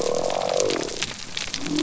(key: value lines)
label: biophony
recorder: SoundTrap 300